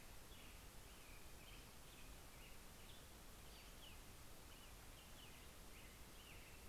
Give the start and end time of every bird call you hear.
[0.00, 6.69] Black-headed Grosbeak (Pheucticus melanocephalus)
[3.04, 3.94] Pacific-slope Flycatcher (Empidonax difficilis)

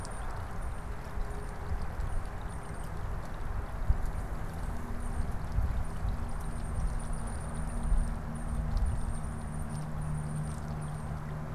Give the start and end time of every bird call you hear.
[0.00, 11.54] Tufted Titmouse (Baeolophus bicolor)

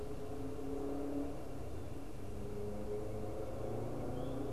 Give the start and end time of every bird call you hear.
[3.62, 4.52] Eastern Towhee (Pipilo erythrophthalmus)

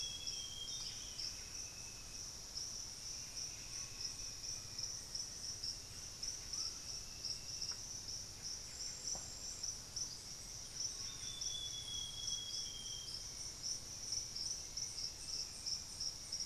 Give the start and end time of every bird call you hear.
[0.00, 1.37] Amazonian Grosbeak (Cyanoloxia rothschildii)
[0.00, 16.45] Buff-breasted Wren (Cantorchilus leucotis)
[3.47, 7.57] Screaming Piha (Lipaugus vociferans)
[3.87, 5.77] Black-faced Antthrush (Formicarius analis)
[9.37, 16.45] Hauxwell's Thrush (Turdus hauxwelli)
[10.57, 13.47] Amazonian Grosbeak (Cyanoloxia rothschildii)

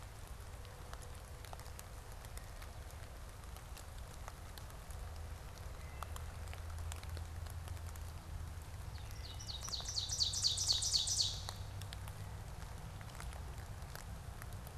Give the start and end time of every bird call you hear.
[5.46, 6.36] Wood Thrush (Hylocichla mustelina)
[8.86, 11.76] Ovenbird (Seiurus aurocapilla)

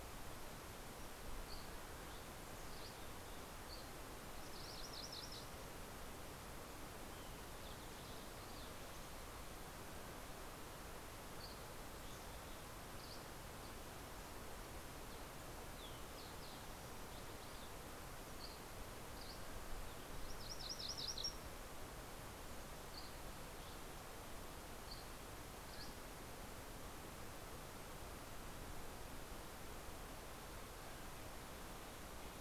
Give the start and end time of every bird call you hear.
[1.23, 4.13] Dusky Flycatcher (Empidonax oberholseri)
[3.93, 6.23] MacGillivray's Warbler (Geothlypis tolmiei)
[6.73, 9.83] Spotted Towhee (Pipilo maculatus)
[10.73, 13.73] Dusky Flycatcher (Empidonax oberholseri)
[15.03, 17.93] Fox Sparrow (Passerella iliaca)
[18.03, 19.63] Dusky Flycatcher (Empidonax oberholseri)
[20.13, 21.53] MacGillivray's Warbler (Geothlypis tolmiei)
[22.73, 27.23] Dusky Flycatcher (Empidonax oberholseri)

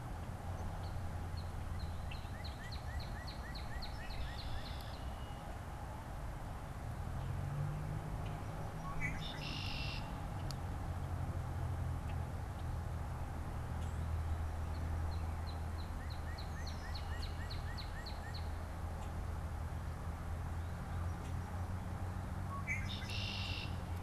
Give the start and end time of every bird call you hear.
[0.56, 5.16] Northern Cardinal (Cardinalis cardinalis)
[3.76, 5.56] Red-winged Blackbird (Agelaius phoeniceus)
[8.66, 10.16] Red-winged Blackbird (Agelaius phoeniceus)
[14.46, 18.66] Northern Cardinal (Cardinalis cardinalis)
[16.36, 17.56] Red-winged Blackbird (Agelaius phoeniceus)
[18.86, 19.16] Red-winged Blackbird (Agelaius phoeniceus)
[21.16, 21.36] Red-winged Blackbird (Agelaius phoeniceus)
[22.26, 23.96] Red-winged Blackbird (Agelaius phoeniceus)

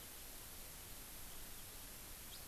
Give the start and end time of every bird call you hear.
[2.22, 2.42] House Finch (Haemorhous mexicanus)

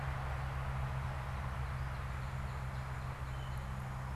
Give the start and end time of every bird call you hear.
[0.94, 4.14] Northern Cardinal (Cardinalis cardinalis)

